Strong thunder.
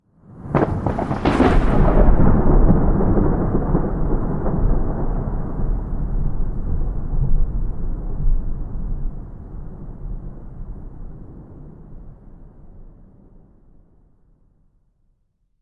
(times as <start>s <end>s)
0.5s 4.8s